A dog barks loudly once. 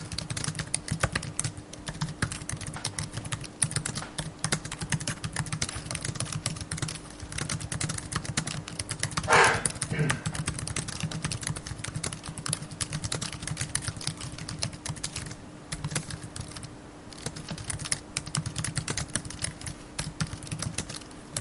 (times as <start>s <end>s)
9.2s 9.6s